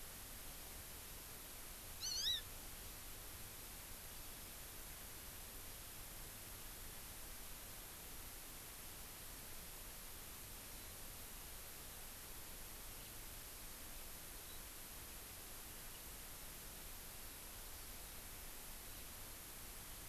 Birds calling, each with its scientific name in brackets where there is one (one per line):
Hawaii Amakihi (Chlorodrepanis virens)
Warbling White-eye (Zosterops japonicus)